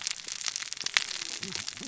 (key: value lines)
label: biophony, cascading saw
recorder: SoundTrap 600 or HydroMoth